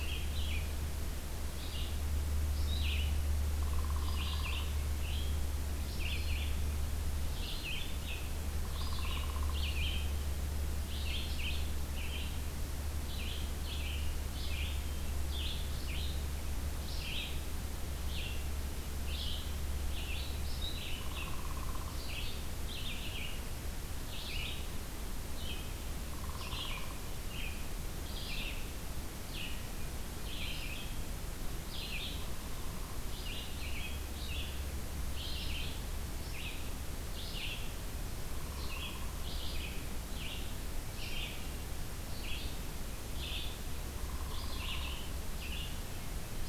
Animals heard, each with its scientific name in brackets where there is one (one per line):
Red-eyed Vireo (Vireo olivaceus)
Downy Woodpecker (Dryobates pubescens)